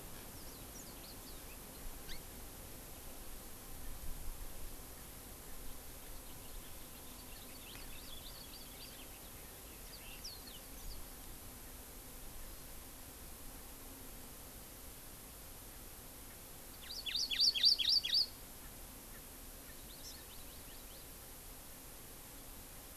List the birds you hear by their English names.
Warbling White-eye, Hawaii Amakihi, House Finch, Erckel's Francolin